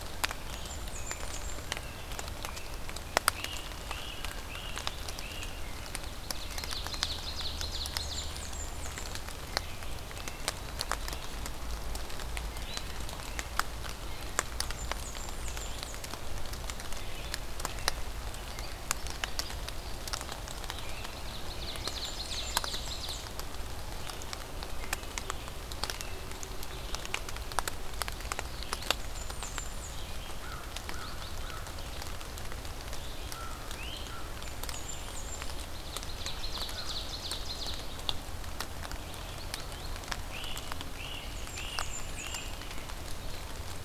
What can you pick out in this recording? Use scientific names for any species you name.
Vireo olivaceus, Setophaga fusca, Turdus migratorius, Myiarchus crinitus, Seiurus aurocapilla, Corvus brachyrhynchos